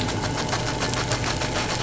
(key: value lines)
label: anthrophony, boat engine
recorder: SoundTrap 500